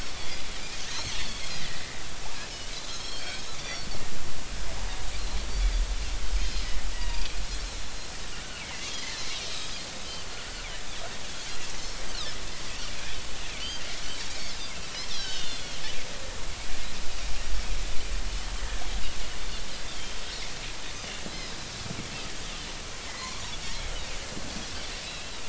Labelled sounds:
0.1	0.4	Pacific white-sided dolphin, 3.2 to 3.6 kHz
0.9	3.9	Pacific white-sided dolphin, 1.7 to 6.7 kHz
6.4	6.8	Pacific white-sided dolphin, 4.0 to 5.3 kHz
8.6	10.3	Pacific white-sided dolphin, 2.0 to 5.3 kHz
11.8	12.9	Pacific white-sided dolphin, 2.5 to 5.5 kHz
13.6	14.6	Pacific white-sided dolphin, 2.0 to 4.8 kHz
15.1	15.8	Pacific white-sided dolphin, 2.8 to 6.1 kHz
18.6	18.8	Pacific white-sided dolphin, 1.6 to 2.0 kHz
19.9	20.2	Pacific white-sided dolphin, 3.1 to 3.3 kHz
21.3	21.6	Pacific white-sided dolphin, 3.8 to 4.2 kHz
23.1	23.4	Pacific white-sided dolphin, 0.90 to 2.2 kHz
25.0	25.3	Pacific white-sided dolphin, 2.5 to 4.1 kHz

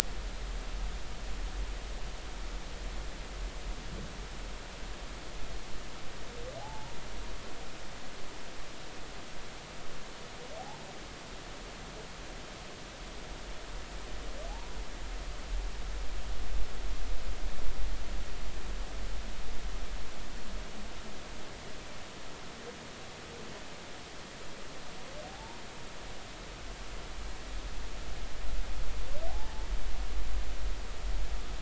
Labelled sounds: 6.6	7.0	humpback whale, 0.80 to 0.99 kHz
25.2	25.6	humpback whale, 0.80 to 0.99 kHz
29.3	29.6	humpback whale, 0.80 to 0.93 kHz

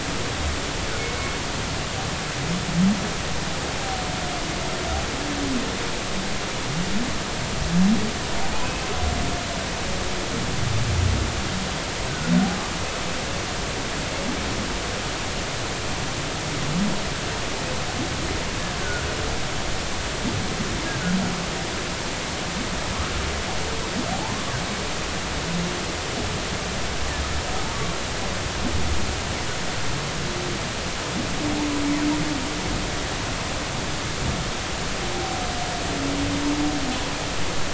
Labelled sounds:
8.6	8.9	humpback whale, 2.5 to 2.7 kHz
24.1	24.5	humpback whale, 0.80 to 1.1 kHz

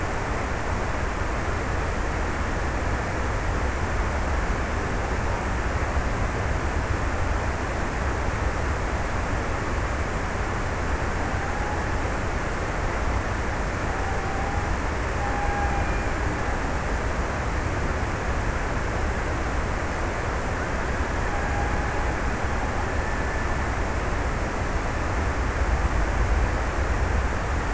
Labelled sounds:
13.5	16.8	killer whale, Bigg's (transient), 0.58 to 1.1 kHz
21.2	23.9	killer whale, Bigg's (transient), 0.63 to 2.1 kHz

